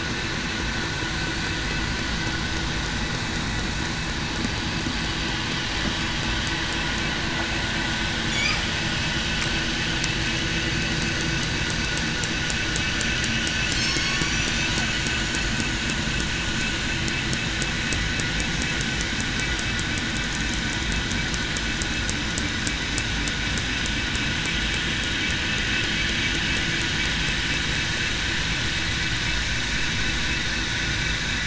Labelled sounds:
13.8	14.7	killer whale, southern resident, 5.3 to 8.0 kHz

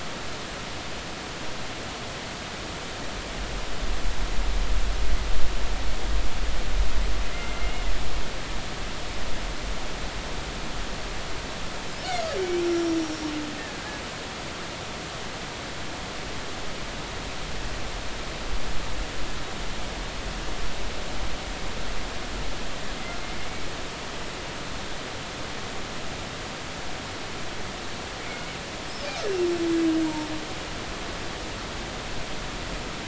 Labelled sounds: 7.3	7.8	killer whale, Bigg's (transient), 2.0 to 2.2 kHz
12.6	12.9	killer whale, Bigg's (transient), 5.3 to 5.6 kHz
13.7	14.0	killer whale, Bigg's (transient), 1.5 to 1.8 kHz

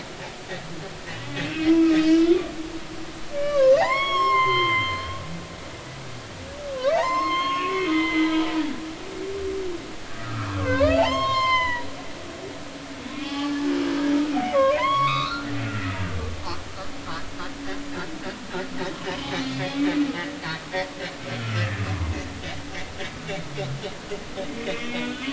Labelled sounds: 1.1	2.4	humpback whale, 1.2 to 6.0 kHz
3.3	5.1	humpback whale, 0.80 to 6.7 kHz
6.9	8.5	humpback whale, 0.80 to 6.5 kHz
10.2	11.9	humpback whale, 0.80 to 7.6 kHz
13.1	13.7	humpback whale, 0.80 to 3.5 kHz
14.4	16.0	humpback whale, 0.93 to 4.5 kHz
19.0	19.7	humpback whale, 1.8 to 4.7 kHz
20.4	21.9	humpback whale, 1.2 to 3.6 kHz
24.7	25.3	humpback whale, 2.1 to 2.6 kHz

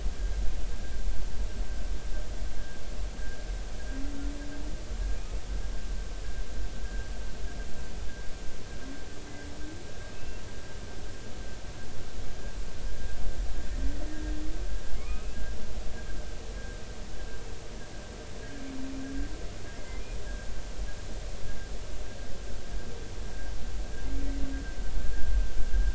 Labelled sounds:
6.8	7.1	humpback whale, 1.5 to 1.7 kHz
10.1	10.4	humpback whale, 2.5 to 2.8 kHz
12.9	14.0	humpback whale, 1.6 to 2.0 kHz
15.0	15.4	humpback whale, 0.99 to 2.7 kHz
19.8	20.0	humpback whale, 2.0 to 2.1 kHz

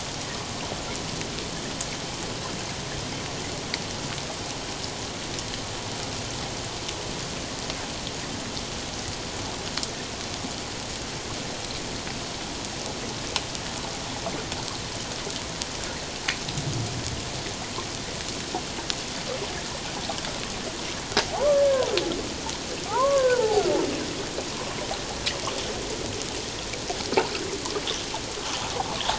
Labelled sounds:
21.3	21.9	humpback whale, 0.78 to 1.8 kHz
22.9	23.6	humpback whale, 0.78 to 1.7 kHz

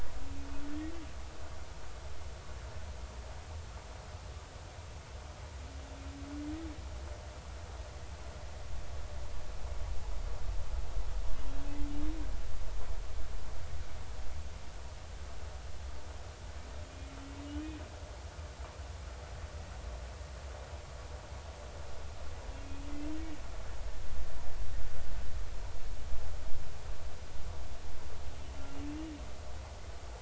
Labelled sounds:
0.7	0.9	humpback whale, 1.7 to 2.0 kHz
28.8	29.1	humpback whale, 2.6 to 2.9 kHz

